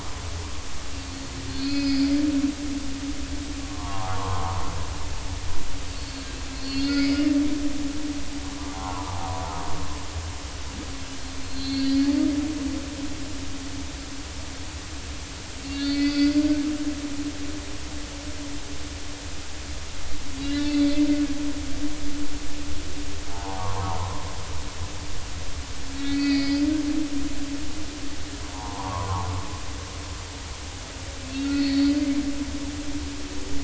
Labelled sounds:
1.5	2.0	humpback whale, 2.4 to 5.0 kHz
3.6	4.6	humpback whale, 0.80 to 1.4 kHz
5.9	6.3	humpback whale, 4.3 to 4.5 kHz
6.5	7.2	humpback whale, 1.9 to 5.2 kHz
8.7	9.4	humpback whale, 0.80 to 1.4 kHz
11.4	12.1	humpback whale, 4.0 to 4.5 kHz
15.6	16.6	humpback whale, 1.4 to 4.8 kHz
20.4	20.7	humpback whale, 1.7 to 3.6 kHz
23.3	24.3	humpback whale, 0.80 to 1.3 kHz
26.0	26.7	humpback whale, 1.8 to 4.8 kHz
28.5	29.3	humpback whale, 0.80 to 1.3 kHz
31.2	31.9	humpback whale, 1.8 to 4.6 kHz

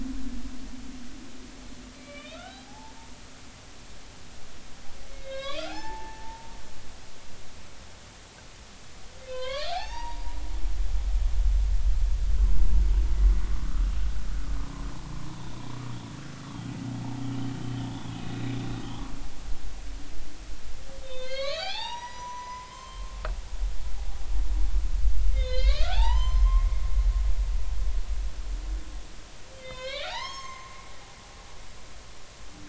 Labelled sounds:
2.0	3.0	humpback whale, 0.80 to 4.0 kHz
5.1	6.5	humpback whale, 0.80 to 4.1 kHz
9.3	10.4	humpback whale, 0.80 to 5.8 kHz
15.4	15.6	humpback whale, 3.4 to 3.9 kHz
17.6	18.5	humpback whale, 2.8 to 4.0 kHz
21.0	23.2	humpback whale, 0.80 to 6.0 kHz
25.3	27.2	humpback whale, 0.80 to 7.3 kHz
29.5	30.7	humpback whale, 0.80 to 7.6 kHz

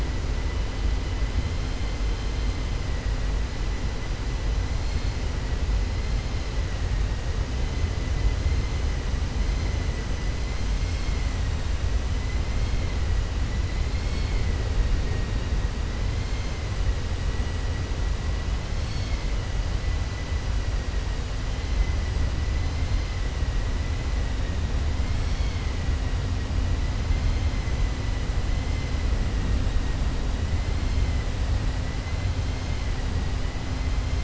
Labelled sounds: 13.9	14.4	vessel noise, 2.1 to 4.9 kHz

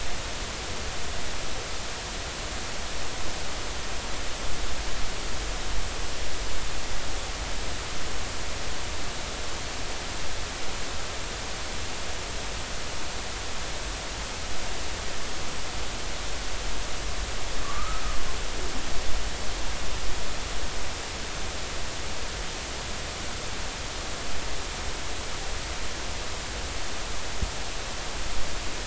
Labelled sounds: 17.6	18.0	humpback whale, 1.1 to 1.4 kHz

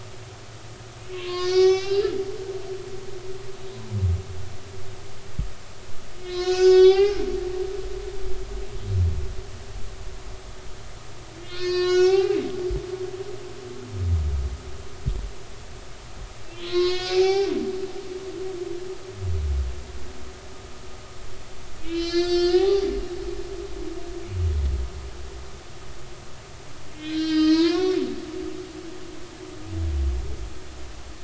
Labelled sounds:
1.1	2.1	humpback whale, 0.99 to 6.2 kHz
6.2	7.2	humpback whale, 0.80 to 7.2 kHz
11.4	12.4	humpback whale, 0.80 to 7.0 kHz
16.6	18.1	humpback whale, 0.80 to 7.0 kHz
21.8	22.9	humpback whale, 0.80 to 6.4 kHz
27.0	28.1	humpback whale, 0.90 to 5.8 kHz

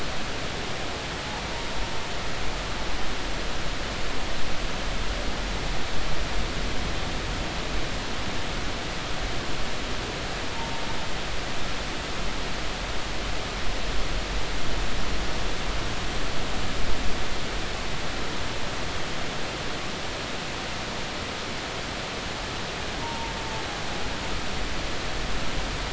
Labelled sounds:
23.0	23.3	humpback whale, 0.86 to 0.99 kHz

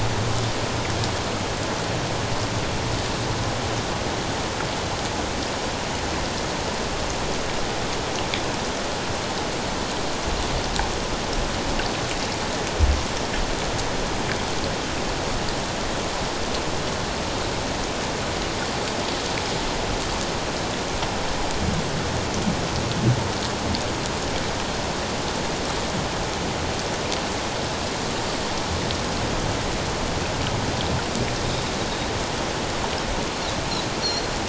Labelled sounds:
34.0	34.3	Pacific white-sided dolphin, 4.1 to 4.4 kHz

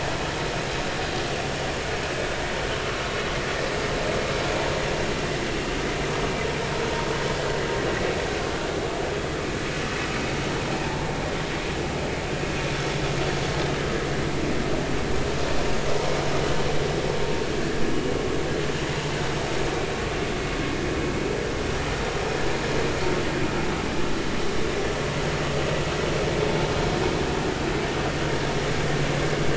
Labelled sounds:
12.7	13.0	vessel noise, 5.3 to 5.5 kHz

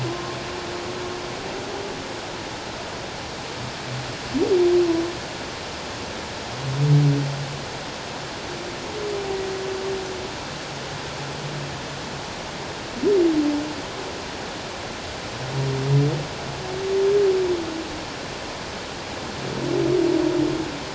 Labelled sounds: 0.1	0.4	humpback whale, 0.97 to 1.1 kHz

